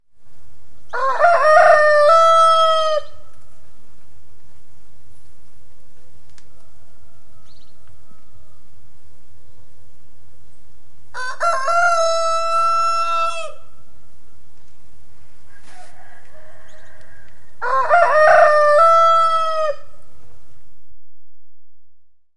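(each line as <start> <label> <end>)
0.9 A rooster crows loudly outdoors. 3.2
6.2 A cricket chirps quietly. 6.5
7.1 A rooster crows quietly in the distance. 8.8
7.3 A bird chirps in the distance outdoors. 8.1
11.1 A rooster crows loudly outdoors. 13.6
15.6 A rooster crows in the distance. 17.5
16.7 A bird chirps quietly outdoors. 17.3
17.6 A rooster crows and fades. 19.8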